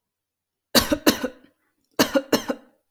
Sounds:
Cough